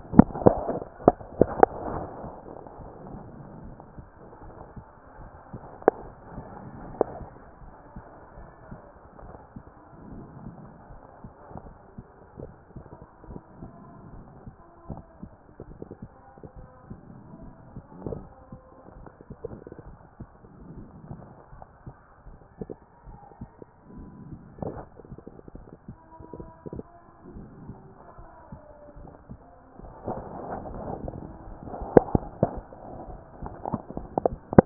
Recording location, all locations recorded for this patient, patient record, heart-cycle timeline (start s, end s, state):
pulmonary valve (PV)
aortic valve (AV)+pulmonary valve (PV)+tricuspid valve (TV)+mitral valve (MV)
#Age: nan
#Sex: Female
#Height: nan
#Weight: nan
#Pregnancy status: True
#Murmur: Absent
#Murmur locations: nan
#Most audible location: nan
#Systolic murmur timing: nan
#Systolic murmur shape: nan
#Systolic murmur grading: nan
#Systolic murmur pitch: nan
#Systolic murmur quality: nan
#Diastolic murmur timing: nan
#Diastolic murmur shape: nan
#Diastolic murmur grading: nan
#Diastolic murmur pitch: nan
#Diastolic murmur quality: nan
#Outcome: Normal
#Campaign: 2014 screening campaign
0.00	7.32	unannotated
7.32	7.62	diastole
7.62	7.72	S1
7.72	7.94	systole
7.94	8.04	S2
8.04	8.38	diastole
8.38	8.48	S1
8.48	8.70	systole
8.70	8.80	S2
8.80	9.22	diastole
9.22	9.34	S1
9.34	9.54	systole
9.54	9.64	S2
9.64	10.06	diastole
10.06	10.24	S1
10.24	10.40	systole
10.40	10.52	S2
10.52	10.92	diastole
10.92	11.02	S1
11.02	11.24	systole
11.24	11.32	S2
11.32	11.56	diastole
11.56	11.70	S1
11.70	11.96	systole
11.96	12.02	S2
12.02	12.40	diastole
12.40	12.52	S1
12.52	12.74	systole
12.74	12.84	S2
12.84	13.28	diastole
13.28	13.40	S1
13.40	13.60	systole
13.60	13.70	S2
13.70	14.12	diastole
14.12	14.24	S1
14.24	14.44	systole
14.44	14.52	S2
14.52	14.88	diastole
14.88	15.02	S1
15.02	15.22	systole
15.22	15.32	S2
15.32	15.68	diastole
15.68	15.80	S1
15.80	16.00	systole
16.00	16.10	S2
16.10	16.56	diastole
16.56	16.68	S1
16.68	16.88	systole
16.88	16.98	S2
16.98	17.16	diastole
17.16	17.30	S1
17.30	17.42	systole
17.42	17.50	S2
17.50	17.84	diastole
17.84	34.66	unannotated